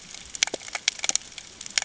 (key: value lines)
label: ambient
recorder: HydroMoth